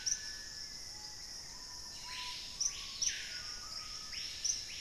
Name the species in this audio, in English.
Black-faced Antthrush, Screaming Piha